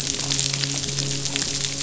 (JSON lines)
{"label": "biophony, midshipman", "recorder": "SoundTrap 500"}